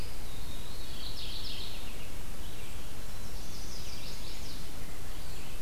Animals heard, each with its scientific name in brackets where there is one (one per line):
Red-eyed Vireo (Vireo olivaceus)
Mourning Warbler (Geothlypis philadelphia)
Chestnut-sided Warbler (Setophaga pensylvanica)
Eastern Wood-Pewee (Contopus virens)